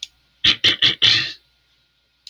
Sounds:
Throat clearing